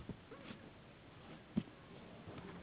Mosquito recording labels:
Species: Anopheles gambiae s.s.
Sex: female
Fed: unfed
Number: one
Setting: insect culture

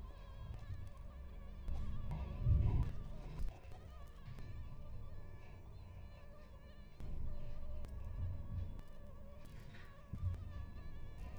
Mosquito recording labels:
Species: Anopheles stephensi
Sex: male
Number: one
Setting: cup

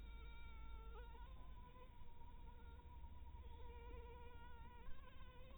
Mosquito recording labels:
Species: Anopheles harrisoni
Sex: female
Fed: blood-fed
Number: one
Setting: cup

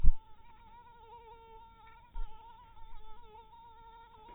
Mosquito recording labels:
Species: mosquito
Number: one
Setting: cup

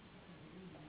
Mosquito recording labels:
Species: Anopheles gambiae s.s.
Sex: female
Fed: unfed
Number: one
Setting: insect culture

